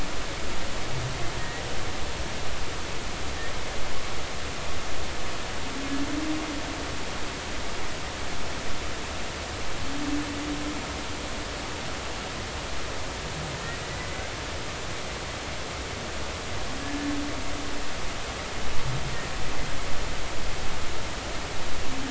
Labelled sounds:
1.4	1.6	humpback whale, 1.8 to 2.0 kHz
14.0	14.2	humpback whale, 1.95 to 2.05 kHz

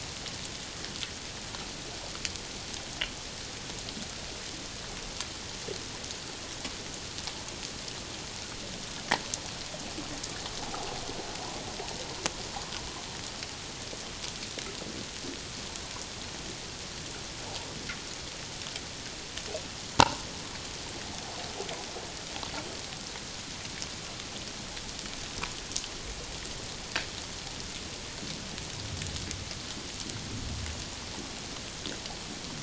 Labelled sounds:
10.6	10.9	water noise, 0.78 to 0.97 kHz

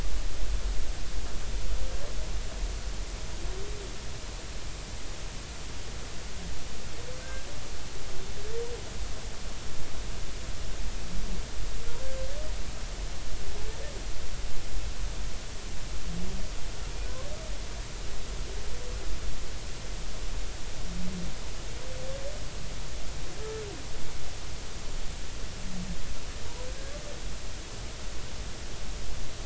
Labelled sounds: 7.2	7.5	humpback whale, 1.5 to 1.7 kHz

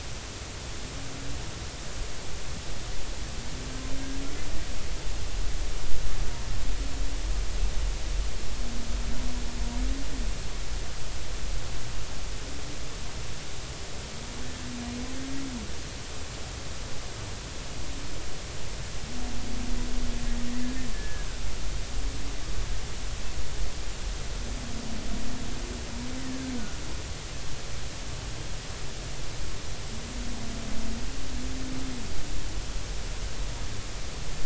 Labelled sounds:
20.9	21.3	humpback whale, 1.6 to 1.8 kHz
26.2	26.5	humpback whale, 1.5 to 2.1 kHz

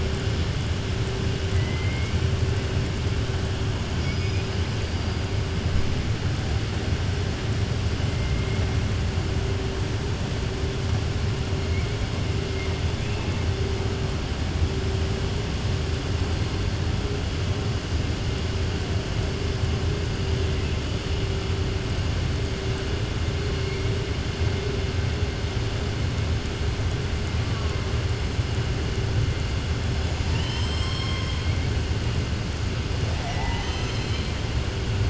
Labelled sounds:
1.5	2.1	killer whale, southern resident, 1.9 to 3.0 kHz

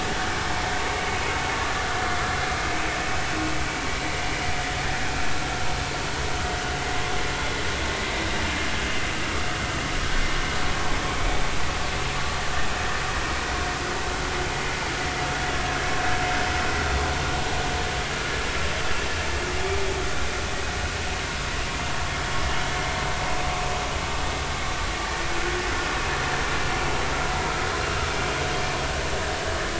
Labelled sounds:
2.6	2.9	vessel noise, 2.5 to 2.7 kHz

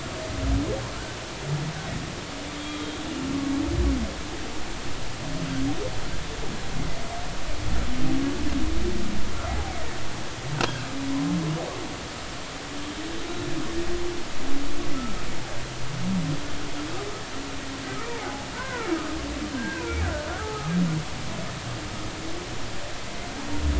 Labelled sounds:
2.5	3.0	humpback whale, 3.2 to 3.4 kHz
9.5	9.7	humpback whale, 0.80 to 0.86 kHz
18.2	18.9	humpback whale, 0.80 to 2.1 kHz
19.5	20.7	humpback whale, 1.2 to 2.6 kHz

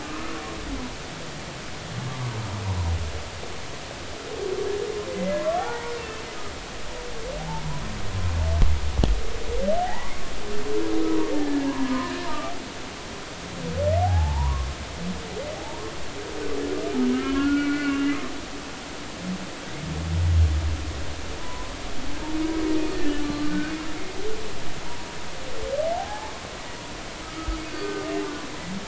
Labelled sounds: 0.0	0.3	humpback whale, 1.1 to 1.3 kHz
5.1	6.2	humpback whale, 0.80 to 2.8 kHz
7.4	7.6	humpback whale, 0.80 to 0.96 kHz
9.8	10.1	humpback whale, 0.80 to 1.2 kHz
11.3	12.5	humpback whale, 0.83 to 1.8 kHz
14.0	14.7	humpback whale, 0.80 to 1.2 kHz
15.6	15.8	humpback whale, 0.80 to 0.99 kHz
17.1	18.3	humpback whale, 1.0 to 2.9 kHz
21.4	21.7	humpback whale, 0.93 to 1.1 kHz
22.9	23.5	humpback whale, 1.1 to 1.9 kHz
25.9	26.3	humpback whale, 0.80 to 0.99 kHz
27.2	28.1	humpback whale, 1.2 to 1.3 kHz

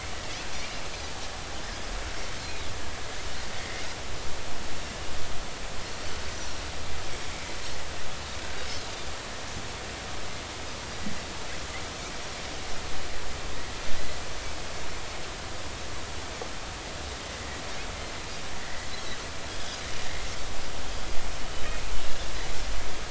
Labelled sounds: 14.0	14.2	Pacific white-sided dolphin, 1.9 to 2.1 kHz
18.6	18.9	Pacific white-sided dolphin, 1.8 to 2.1 kHz

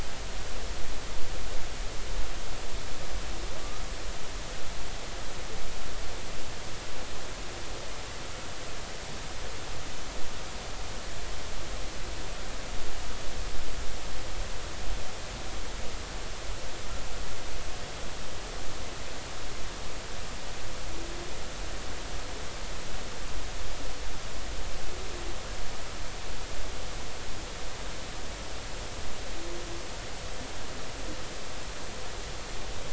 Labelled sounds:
3.6	3.8	humpback whale, 1.1 to 1.3 kHz

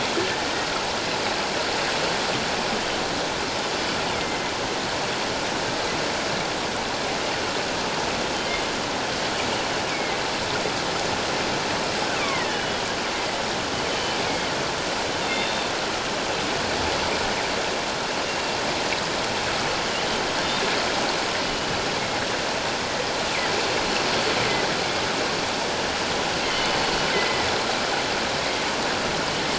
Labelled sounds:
0.2	0.5	killer whale, northern resident, G clan, 1.7 to 1.8 kHz
4.2	4.5	killer whale, northern resident, G clan, 2.0 to 2.2 kHz
9.9	10.2	killer whale, northern resident, G clan, 2.0 to 2.4 kHz
12.2	12.7	killer whale, northern resident, G clan, 1.6 to 3.0 kHz
13.9	14.5	killer whale, northern resident, G clan, 2.1 to 3.2 kHz
15.2	15.7	killer whale, northern resident, G clan, 3.5 to 3.7 kHz
26.4	27.5	killer whale, northern resident, G clan, 1.9 to 3.2 kHz

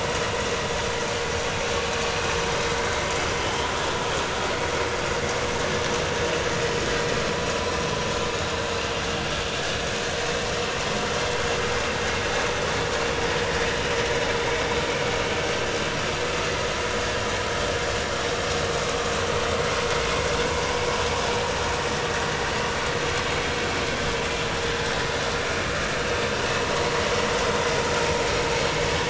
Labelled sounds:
3.3	3.7	vessel noise, 2.9 to 3.3 kHz

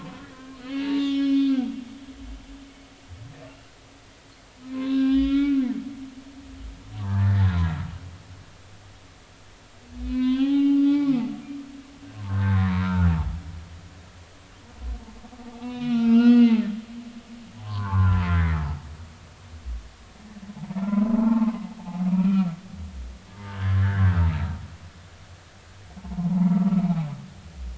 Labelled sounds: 0.2	1.7	humpback whale, 1.1 to 5.3 kHz
4.6	5.6	humpback whale, 0.99 to 5.0 kHz
7.0	7.5	humpback whale, 0.86 to 2.0 kHz
10.0	13.1	humpback whale, 0.80 to 4.8 kHz
15.6	16.7	humpback whale, 0.86 to 4.4 kHz
17.6	18.6	humpback whale, 0.80 to 2.2 kHz
20.8	21.5	humpback whale, 0.83 to 1.4 kHz
22.1	22.5	humpback whale, 1.2 to 2.6 kHz
23.4	24.2	humpback whale, 1.3 to 1.8 kHz
26.0	27.1	humpback whale, 0.80 to 2.5 kHz

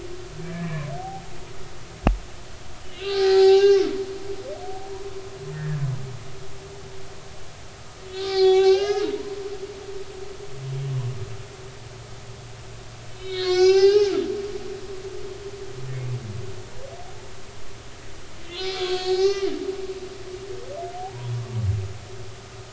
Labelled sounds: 0.4	1.3	humpback whale, 0.80 to 2.5 kHz
2.8	3.9	humpback whale, 0.80 to 5.6 kHz
4.9	5.8	humpback whale, 0.90 to 1.9 kHz
8.1	9.4	humpback whale, 0.80 to 7.0 kHz
13.1	14.8	humpback whale, 0.80 to 7.2 kHz
18.5	19.5	humpback whale, 0.80 to 6.4 kHz
21.0	21.4	humpback whale, 0.80 to 1.1 kHz

